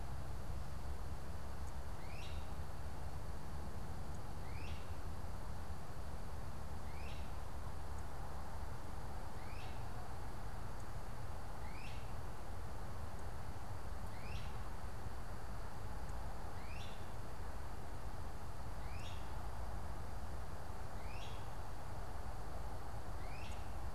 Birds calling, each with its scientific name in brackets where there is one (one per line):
Great Crested Flycatcher (Myiarchus crinitus)